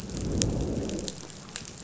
{"label": "biophony, growl", "recorder": "SoundTrap 500"}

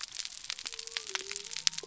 {"label": "biophony", "recorder": "SoundTrap 300"}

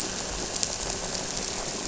{"label": "anthrophony, boat engine", "recorder": "SoundTrap 300"}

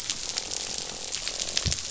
{"label": "biophony, croak", "recorder": "SoundTrap 500"}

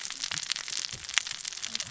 {"label": "biophony, cascading saw", "recorder": "SoundTrap 600 or HydroMoth"}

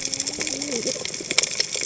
{"label": "biophony, cascading saw", "recorder": "HydroMoth"}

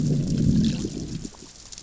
{"label": "biophony, growl", "recorder": "SoundTrap 600 or HydroMoth"}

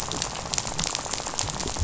{"label": "biophony, rattle", "recorder": "SoundTrap 500"}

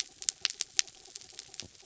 {"label": "anthrophony, mechanical", "recorder": "SoundTrap 300"}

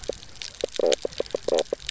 {"label": "biophony, knock croak", "recorder": "SoundTrap 300"}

